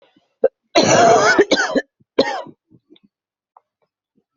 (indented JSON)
{
  "expert_labels": [
    {
      "quality": "good",
      "cough_type": "wet",
      "dyspnea": false,
      "wheezing": false,
      "stridor": false,
      "choking": false,
      "congestion": false,
      "nothing": true,
      "diagnosis": "lower respiratory tract infection",
      "severity": "unknown"
    }
  ],
  "age": 35,
  "gender": "female",
  "respiratory_condition": false,
  "fever_muscle_pain": true,
  "status": "healthy"
}